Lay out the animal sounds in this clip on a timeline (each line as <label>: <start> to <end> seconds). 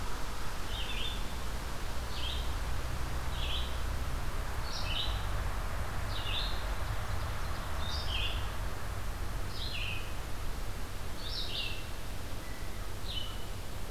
Red-eyed Vireo (Vireo olivaceus): 0.0 to 13.4 seconds
Ovenbird (Seiurus aurocapilla): 6.5 to 7.8 seconds
Blue Jay (Cyanocitta cristata): 12.3 to 12.9 seconds